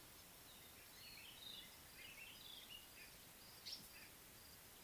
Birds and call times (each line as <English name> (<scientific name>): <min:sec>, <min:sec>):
White-browed Robin-Chat (Cossypha heuglini): 0:01.5
African Paradise-Flycatcher (Terpsiphone viridis): 0:03.7